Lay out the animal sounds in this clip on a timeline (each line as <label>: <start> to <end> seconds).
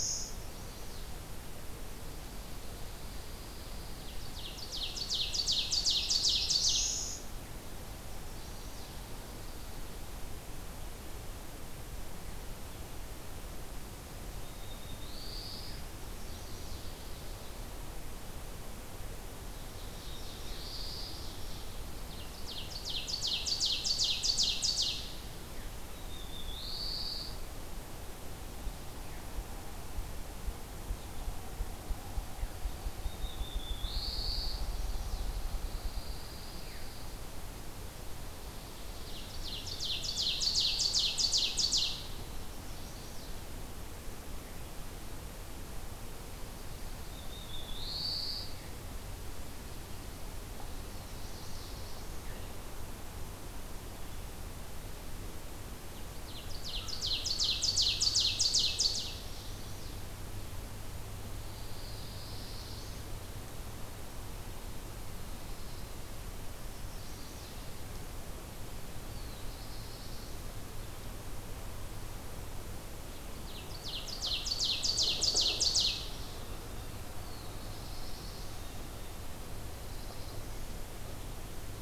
Chestnut-sided Warbler (Setophaga pensylvanica): 0.2 to 1.1 seconds
Pine Warbler (Setophaga pinus): 2.1 to 4.2 seconds
Ovenbird (Seiurus aurocapilla): 3.9 to 7.3 seconds
Black-throated Blue Warbler (Setophaga caerulescens): 5.8 to 7.2 seconds
Chestnut-sided Warbler (Setophaga pensylvanica): 8.1 to 9.0 seconds
Black-throated Blue Warbler (Setophaga caerulescens): 14.3 to 15.9 seconds
Chestnut-sided Warbler (Setophaga pensylvanica): 15.9 to 16.8 seconds
Ovenbird (Seiurus aurocapilla): 19.4 to 25.2 seconds
Black-throated Blue Warbler (Setophaga caerulescens): 19.4 to 21.3 seconds
Black-throated Blue Warbler (Setophaga caerulescens): 25.6 to 27.4 seconds
Black-throated Blue Warbler (Setophaga caerulescens): 32.9 to 34.7 seconds
Chestnut-sided Warbler (Setophaga pensylvanica): 34.2 to 35.4 seconds
Pine Warbler (Setophaga pinus): 35.3 to 37.2 seconds
Ovenbird (Seiurus aurocapilla): 38.9 to 42.1 seconds
Chestnut-sided Warbler (Setophaga pensylvanica): 42.4 to 43.3 seconds
Black-throated Blue Warbler (Setophaga caerulescens): 46.9 to 48.7 seconds
Black-throated Blue Warbler (Setophaga caerulescens): 50.4 to 52.2 seconds
Ovenbird (Seiurus aurocapilla): 55.9 to 59.2 seconds
Chestnut-sided Warbler (Setophaga pensylvanica): 59.1 to 60.0 seconds
Black-throated Blue Warbler (Setophaga caerulescens): 61.1 to 63.1 seconds
Chestnut-sided Warbler (Setophaga pensylvanica): 66.7 to 67.6 seconds
Black-throated Blue Warbler (Setophaga caerulescens): 69.0 to 70.4 seconds
Ovenbird (Seiurus aurocapilla): 73.0 to 76.2 seconds
Black-throated Blue Warbler (Setophaga caerulescens): 77.0 to 78.6 seconds
Black-throated Blue Warbler (Setophaga caerulescens): 79.4 to 80.9 seconds